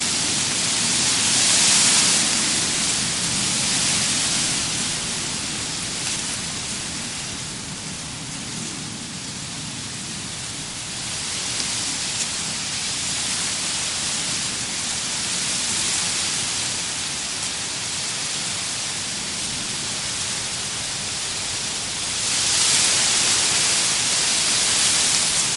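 A steady wind creates a smooth, continuous whooshing sound with gentle rustling. 0.0 - 25.6
Whispery rustling of grass blades swaying in the wind. 0.0 - 25.6

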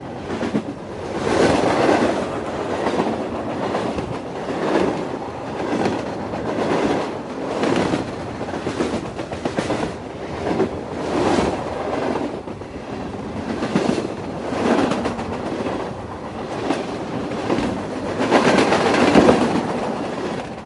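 A train passes by closely and rhythmically. 0.0 - 20.7
Soft wind is blowing. 0.0 - 20.7

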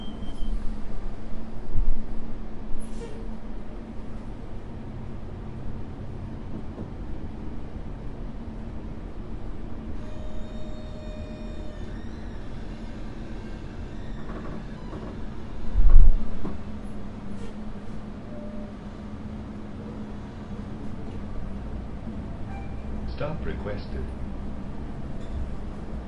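Quiet squeaking sounds. 0.0 - 3.4
Vehicle engine running quietly. 3.5 - 10.2
Quiet squeaking sounds. 10.3 - 15.7
A loud gust of wind. 15.7 - 16.4
A bus engine is quietly running. 16.4 - 26.1
An announcement indicating that a stop has been requested. 22.9 - 24.8

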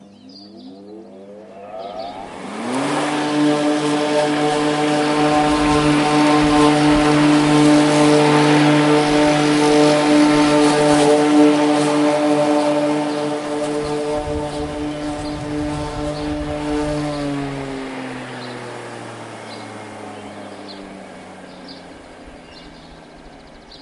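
A lawnmower whirs loudly, increasing and then gradually decreasing. 0.0 - 23.8

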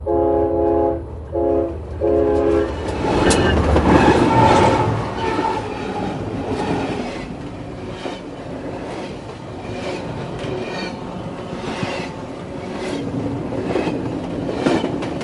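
A train horn sounds loudly and repeatedly nearby. 0.0 - 2.7
Rails collide with train wheels producing a loud metallic sound that gradually increases. 2.6 - 4.3
Train wheels collide with rails, producing a loud metallic sound that gradually decreases. 4.3 - 7.4
Train wheels repeatedly collide with rails, producing a loud metallic sound nearby. 7.3 - 15.2

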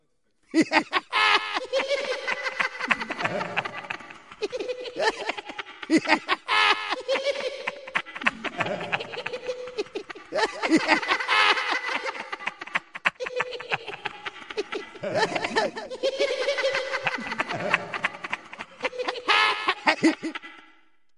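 An annoying laugh reverberates repeatedly, echoing through a vast hall. 0.1 - 21.2

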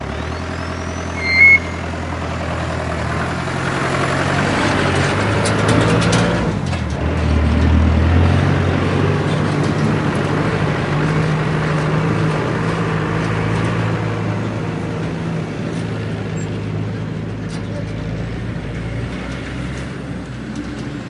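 A truck passes by. 0.0 - 21.1
Brake pads squeak loudly. 1.1 - 1.7
The truck suspension is shaking. 5.4 - 6.5

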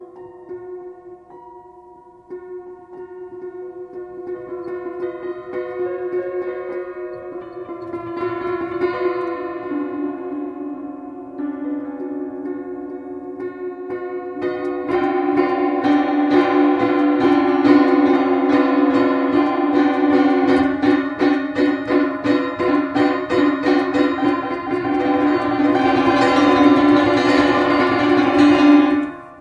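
An untuned, eerie piano plays slowly and speeds up with light, scattered notes and a lot of reverb. 0.0 - 11.4
Fast-paced piano notes played loudly with a lot of reverb. 11.4 - 20.4
A piano chord is played repeatedly in a rhythmic pattern without reverb. 20.4 - 24.6
Random, fast-paced piano notes played loudly with a lot of reverb. 24.6 - 29.4

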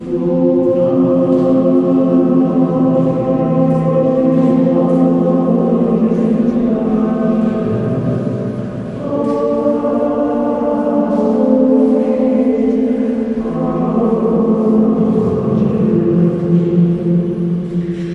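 People in a church singing slowly and clearly with their voices rhythmically increasing and decreasing, creating a metallic and echoing effect. 0.0 - 18.1

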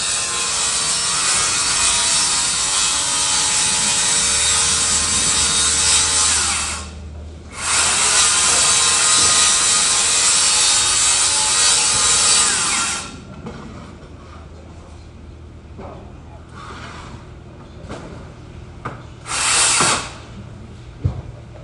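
A circular saw produces a high-pitched, sharp, continuous whirring sound while cutting through material. 0.0 - 13.1
Sounds of construction work. 13.2 - 21.6

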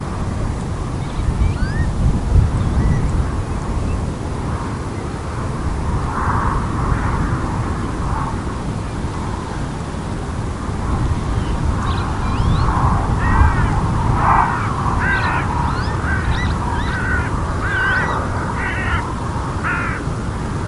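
General noise created by wind in a landscape. 0.0 - 20.7
A bird calls with a high-pitched sound. 1.2 - 3.3
A bird calls with a high-pitched sound. 11.8 - 12.8
A crow caws repeatedly. 13.3 - 20.7
A bird calls repeatedly with a high-pitched sound. 15.2 - 18.5

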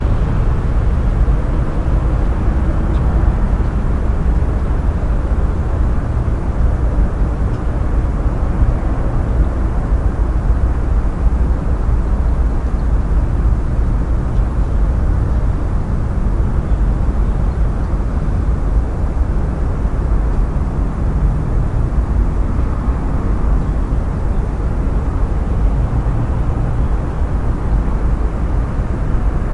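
The steady sound of moving air indoors, similar to being in a car on a highway or an airplane. 0.0 - 29.5

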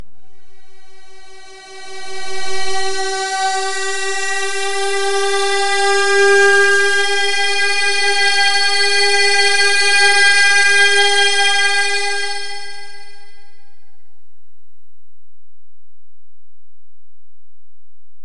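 An electronic tone steadily rises in volume. 1.2 - 13.2

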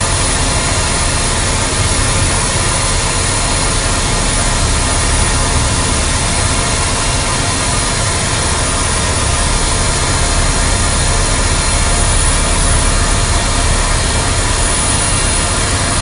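A continuous, partially repeating metallic sound of an industrial machine working in a production facility is heard. 0.2 - 15.6

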